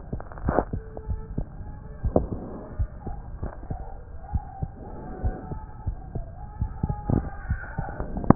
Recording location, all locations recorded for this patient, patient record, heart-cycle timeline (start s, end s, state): aortic valve (AV)
aortic valve (AV)+pulmonary valve (PV)+tricuspid valve (TV)+mitral valve (MV)
#Age: Child
#Sex: Male
#Height: 104.0 cm
#Weight: 19.8 kg
#Pregnancy status: False
#Murmur: Absent
#Murmur locations: nan
#Most audible location: nan
#Systolic murmur timing: nan
#Systolic murmur shape: nan
#Systolic murmur grading: nan
#Systolic murmur pitch: nan
#Systolic murmur quality: nan
#Diastolic murmur timing: nan
#Diastolic murmur shape: nan
#Diastolic murmur grading: nan
#Diastolic murmur pitch: nan
#Diastolic murmur quality: nan
#Outcome: Normal
#Campaign: 2015 screening campaign
0.00	2.75	unannotated
2.75	2.88	S1
2.88	3.04	systole
3.04	3.16	S2
3.16	3.40	diastole
3.40	3.52	S1
3.52	3.68	systole
3.68	3.78	S2
3.78	4.29	diastole
4.29	4.42	S1
4.42	4.59	systole
4.59	4.70	S2
4.70	5.20	diastole
5.20	5.34	S1
5.34	5.47	systole
5.47	5.62	S2
5.62	5.83	diastole
5.83	6.00	S1
6.00	6.12	systole
6.12	6.28	S2
6.28	6.56	diastole
6.56	6.70	S1
6.70	6.85	systole
6.85	6.96	S2
6.96	7.46	diastole
7.46	7.64	S1
7.64	8.35	unannotated